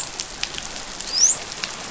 {"label": "biophony, dolphin", "recorder": "SoundTrap 500"}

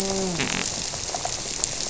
{"label": "biophony", "recorder": "SoundTrap 300"}
{"label": "biophony, grouper", "recorder": "SoundTrap 300"}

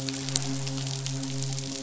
{"label": "biophony, midshipman", "recorder": "SoundTrap 500"}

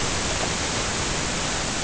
{"label": "ambient", "recorder": "HydroMoth"}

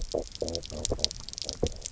{"label": "biophony, low growl", "recorder": "SoundTrap 300"}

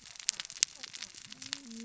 {"label": "biophony, cascading saw", "recorder": "SoundTrap 600 or HydroMoth"}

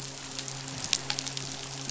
{"label": "biophony, midshipman", "recorder": "SoundTrap 500"}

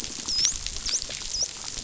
{"label": "biophony, dolphin", "recorder": "SoundTrap 500"}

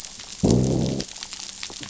{"label": "biophony, growl", "recorder": "SoundTrap 500"}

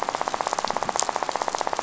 {"label": "biophony, rattle", "recorder": "SoundTrap 500"}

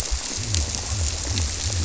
{"label": "biophony", "recorder": "SoundTrap 300"}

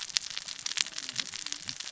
{"label": "biophony, cascading saw", "recorder": "SoundTrap 600 or HydroMoth"}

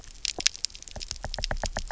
{"label": "biophony, knock", "recorder": "SoundTrap 300"}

